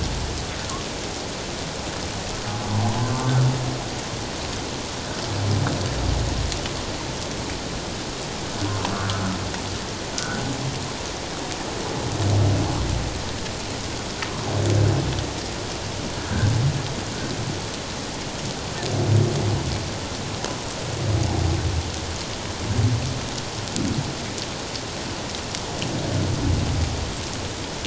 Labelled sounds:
8.9	9.2	humpback whale, 1.1 to 1.6 kHz

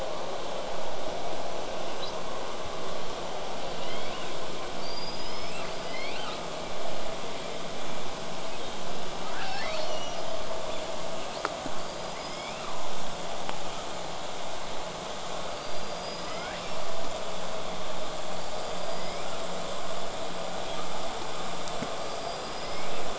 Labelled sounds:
1.9	2.2	killer whale, southern resident, 3.5 to 6.2 kHz
3.6	4.4	killer whale, southern resident, L pod, call S19, 1.9 to 5.2 kHz
4.8	6.4	killer whale, southern resident, L pod, call S19, 1.1 to 8.0 kHz
8.5	8.9	killer whale, southern resident, 2.4 to 4.3 kHz
9.3	10.8	killer whale, southern resident, 0.46 to 6.2 kHz
11.2	11.6	killer whale, southern resident, 3.3 to 5.3 kHz
11.8	12.7	killer whale, southern resident, L pod, call S19, 1.7 to 8.0 kHz
15.5	16.8	killer whale, southern resident, L pod, call S19, 1.0 to 8.0 kHz
18.3	19.3	killer whale, southern resident, L pod, call S19, 1.6 to 8.0 kHz
22.0	23.1	killer whale, southern resident, L pod, call S19, 1.7 to 8.0 kHz

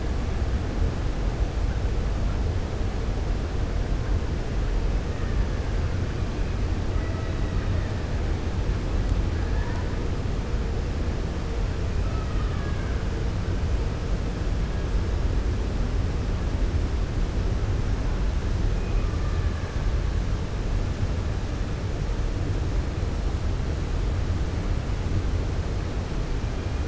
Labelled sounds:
12.0	13.0	killer whale, 1.1 to 2.3 kHz

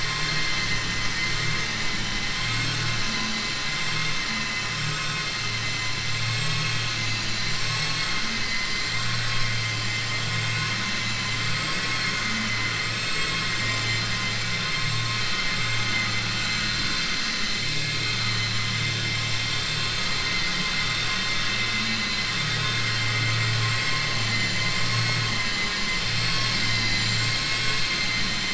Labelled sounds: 2.3	2.8	vessel noise, 1.3 to 4.5 kHz

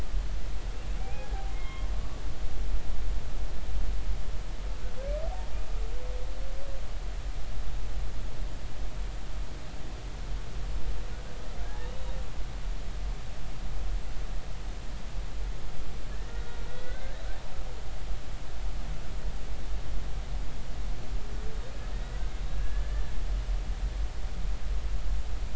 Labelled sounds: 1.0	1.9	humpback whale, 0.80 to 3.3 kHz
11.6	11.9	humpback whale, 1.6 to 1.9 kHz
16.1	17.2	humpback whale, 1.4 to 4.1 kHz
21.9	23.1	humpback whale, 1.6 to 2.0 kHz

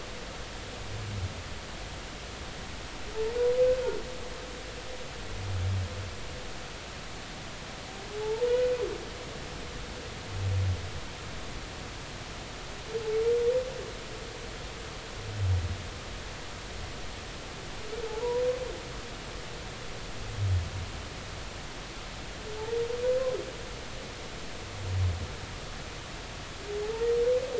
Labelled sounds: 8.2	8.5	humpback whale, 0.80 to 0.96 kHz
18.1	18.4	humpback whale, 0.80 to 1.0 kHz

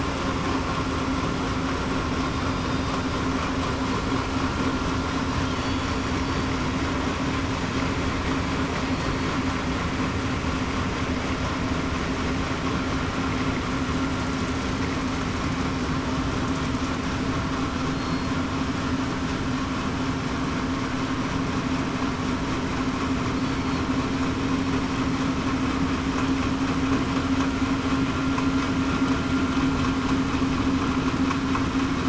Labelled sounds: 2.3	2.7	killer whale, southern resident, 4.8 to 4.9 kHz
8.9	9.3	killer whale, southern resident, 4.3 to 4.4 kHz
17.9	18.3	killer whale, southern resident, 4.2 to 4.3 kHz
23.4	23.8	killer whale, southern resident, 4.3 to 4.5 kHz

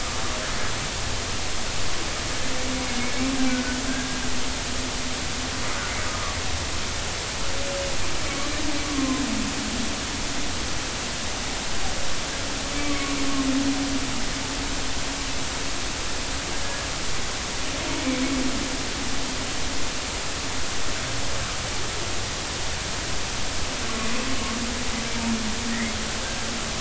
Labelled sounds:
3.5	4.2	humpback whale, 1.3 to 1.7 kHz
6.1	6.4	humpback whale, 1.1 to 1.3 kHz
8.8	9.2	humpback whale, 0.99 to 1.2 kHz
12.8	13.2	humpback whale, 0.99 to 1.2 kHz
16.6	16.9	humpback whale, 1.6 to 1.9 kHz
25.7	25.9	humpback whale, 1.7 to 2.2 kHz

